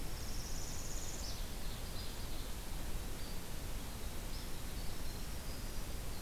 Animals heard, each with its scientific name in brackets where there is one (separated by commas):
Winter Wren (Troglodytes hiemalis), Ovenbird (Seiurus aurocapilla), Northern Parula (Setophaga americana)